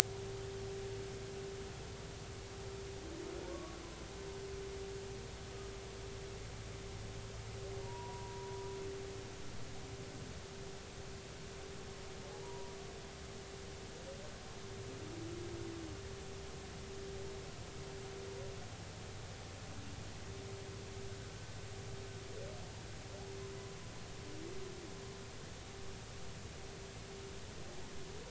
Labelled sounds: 3.5	3.8	humpback whale, 1.0 to 1.3 kHz
7.8	8.6	humpback whale, 0.90 to 1.1 kHz
12.4	12.8	humpback whale, 0.90 to 1.0 kHz

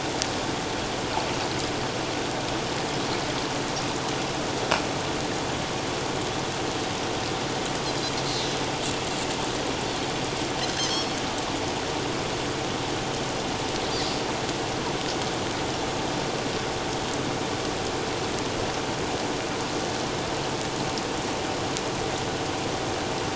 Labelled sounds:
10.9	11.2	Pacific white-sided dolphin, 5.3 to 5.6 kHz

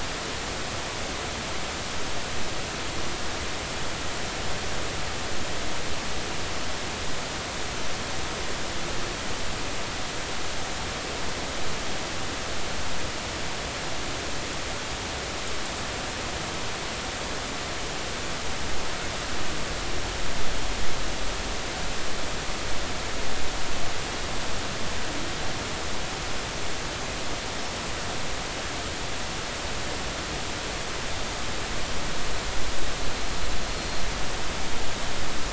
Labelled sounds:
33.7	34.0	killer whale, Bigg's (transient), 4.1 to 4.4 kHz

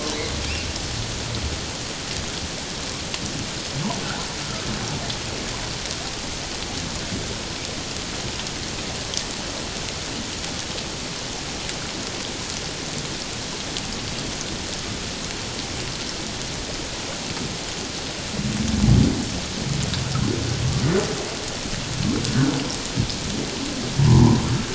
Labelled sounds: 24.0	24.5	humpback whale, 0.81 to 1.1 kHz

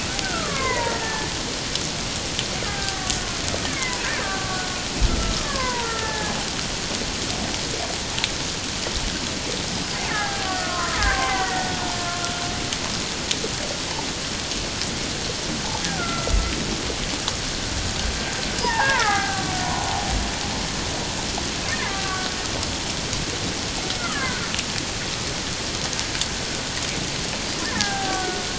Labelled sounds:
0.2	1.3	killer whale, Bigg's (transient), 0.81 to 2.3 kHz
2.7	3.1	killer whale, Bigg's (transient), 0.78 to 1.7 kHz
3.6	4.6	killer whale, Bigg's (transient), 0.94 to 2.4 kHz
5.1	6.4	killer whale, Bigg's (transient), 0.78 to 1.9 kHz
10.1	12.2	killer whale, Bigg's (transient), 0.78 to 2.2 kHz
15.8	16.5	killer whale, Bigg's (transient), 1.3 to 2.1 kHz
18.6	19.5	killer whale, Bigg's (transient), 0.78 to 2.3 kHz
21.7	22.3	killer whale, Bigg's (transient), 1.1 to 1.9 kHz
24.0	24.5	killer whale, Bigg's (transient), 0.97 to 1.8 kHz
27.6	28.4	killer whale, Bigg's (transient), 0.78 to 1.9 kHz

